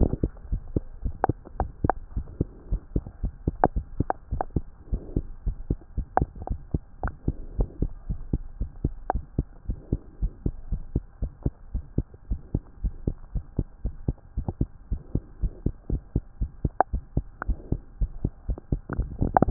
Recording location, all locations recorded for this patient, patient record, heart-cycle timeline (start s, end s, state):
tricuspid valve (TV)
aortic valve (AV)+pulmonary valve (PV)+tricuspid valve (TV)+mitral valve (MV)
#Age: Infant
#Sex: Male
#Height: 68.0 cm
#Weight: 7.0 kg
#Pregnancy status: False
#Murmur: Present
#Murmur locations: pulmonary valve (PV)+tricuspid valve (TV)
#Most audible location: pulmonary valve (PV)
#Systolic murmur timing: Early-systolic
#Systolic murmur shape: Plateau
#Systolic murmur grading: I/VI
#Systolic murmur pitch: Low
#Systolic murmur quality: Blowing
#Diastolic murmur timing: nan
#Diastolic murmur shape: nan
#Diastolic murmur grading: nan
#Diastolic murmur pitch: nan
#Diastolic murmur quality: nan
#Outcome: Abnormal
#Campaign: 2015 screening campaign
0.00	6.38	unannotated
6.38	6.48	diastole
6.48	6.59	S1
6.59	6.70	systole
6.70	6.82	S2
6.82	7.02	diastole
7.02	7.16	S1
7.16	7.26	systole
7.26	7.36	S2
7.36	7.54	diastole
7.54	7.68	S1
7.68	7.80	systole
7.80	7.92	S2
7.92	8.08	diastole
8.08	8.22	S1
8.22	8.32	systole
8.32	8.42	S2
8.42	8.58	diastole
8.58	8.70	S1
8.70	8.82	systole
8.82	8.96	S2
8.96	9.14	diastole
9.14	9.24	S1
9.24	9.34	systole
9.34	9.48	S2
9.48	9.68	diastole
9.68	9.78	S1
9.78	9.88	systole
9.88	10.02	S2
10.02	10.20	diastole
10.20	10.32	S1
10.32	10.44	systole
10.44	10.54	S2
10.54	10.70	diastole
10.70	10.84	S1
10.84	10.94	systole
10.94	11.04	S2
11.04	11.22	diastole
11.22	11.32	S1
11.32	11.42	systole
11.42	11.52	S2
11.52	11.72	diastole
11.72	11.84	S1
11.84	11.94	systole
11.94	12.08	S2
12.08	12.30	diastole
12.30	12.40	S1
12.40	12.50	systole
12.50	12.62	S2
12.62	12.82	diastole
12.82	12.94	S1
12.94	13.06	systole
13.06	13.16	S2
13.16	13.34	diastole
13.34	13.44	S1
13.44	13.54	systole
13.54	13.66	S2
13.66	13.84	diastole
13.84	13.94	S1
13.94	14.04	systole
14.04	14.18	S2
14.18	14.36	diastole
14.36	14.46	S1
14.46	14.56	systole
14.56	14.70	S2
14.70	14.90	diastole
14.90	15.02	S1
15.02	15.14	systole
15.14	15.24	S2
15.24	15.42	diastole
15.42	15.54	S1
15.54	15.62	systole
15.62	15.74	S2
15.74	15.92	diastole
15.92	16.02	S1
16.02	16.16	systole
16.16	16.26	S2
16.26	16.40	diastole
16.40	16.52	S1
16.52	16.60	systole
16.60	16.74	S2
16.74	16.92	diastole
16.92	17.04	S1
17.04	17.16	systole
17.16	17.26	S2
17.26	17.46	diastole
17.46	17.60	S1
17.60	17.68	systole
17.68	17.82	S2
17.82	17.98	diastole
17.98	18.12	S1
18.12	18.22	systole
18.22	18.32	S2
18.32	18.48	diastole
18.48	18.58	S1
18.58	18.68	systole
18.68	18.80	S2
18.80	18.85	diastole
18.85	19.50	unannotated